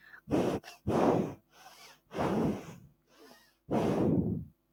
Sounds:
Sniff